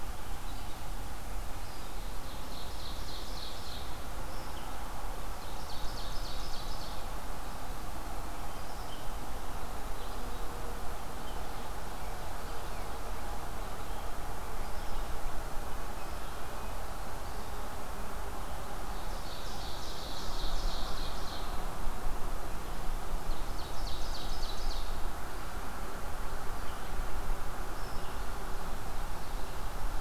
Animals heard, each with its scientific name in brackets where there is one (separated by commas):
Ovenbird (Seiurus aurocapilla), Red-eyed Vireo (Vireo olivaceus), Red-breasted Nuthatch (Sitta canadensis)